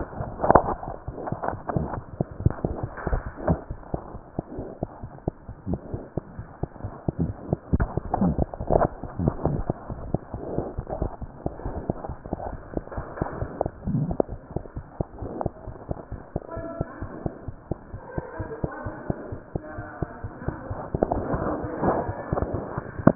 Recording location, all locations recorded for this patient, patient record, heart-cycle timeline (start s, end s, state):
mitral valve (MV)
aortic valve (AV)+mitral valve (MV)
#Age: Infant
#Sex: Male
#Height: nan
#Weight: nan
#Pregnancy status: False
#Murmur: Unknown
#Murmur locations: nan
#Most audible location: nan
#Systolic murmur timing: nan
#Systolic murmur shape: nan
#Systolic murmur grading: nan
#Systolic murmur pitch: nan
#Systolic murmur quality: nan
#Diastolic murmur timing: nan
#Diastolic murmur shape: nan
#Diastolic murmur grading: nan
#Diastolic murmur pitch: nan
#Diastolic murmur quality: nan
#Outcome: Abnormal
#Campaign: 2015 screening campaign
0.00	14.29	unannotated
14.29	14.42	S1
14.42	14.52	systole
14.52	14.62	S2
14.62	14.76	diastole
14.76	14.84	S1
14.84	14.96	systole
14.96	15.06	S2
15.06	15.21	diastole
15.21	15.30	S1
15.30	15.44	systole
15.44	15.52	S2
15.52	15.68	diastole
15.68	15.76	S1
15.76	15.86	systole
15.86	15.96	S2
15.96	16.12	diastole
16.12	16.22	S1
16.22	16.32	systole
16.32	16.42	S2
16.42	16.55	diastole
16.55	16.66	S1
16.66	16.78	systole
16.78	16.88	S2
16.88	17.01	diastole
17.01	17.12	S1
17.12	17.22	systole
17.22	17.32	S2
17.32	17.48	diastole
17.48	17.58	S1
17.58	17.70	systole
17.70	17.78	S2
17.78	17.94	diastole
17.94	18.02	S1
18.02	18.14	systole
18.14	18.24	S2
18.24	18.40	diastole
18.40	18.50	S1
18.50	18.60	systole
18.60	18.70	S2
18.70	18.84	diastole
18.84	18.94	S1
18.94	19.06	systole
19.06	19.16	S2
19.16	19.30	diastole
19.30	19.40	S1
19.40	19.52	systole
19.52	19.62	S2
19.62	19.76	diastole
19.76	19.86	S1
19.86	19.98	systole
19.98	20.08	S2
20.08	20.22	diastole
20.22	20.32	S1
20.32	20.42	systole
20.42	20.56	S2
20.56	20.69	diastole
20.69	20.76	S1
20.76	23.15	unannotated